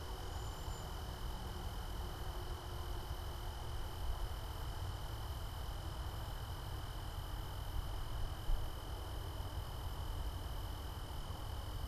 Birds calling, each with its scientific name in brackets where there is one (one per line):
Cedar Waxwing (Bombycilla cedrorum)